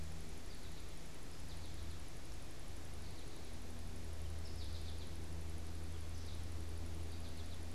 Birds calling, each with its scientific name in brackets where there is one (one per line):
American Goldfinch (Spinus tristis)